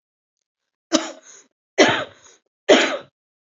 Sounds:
Cough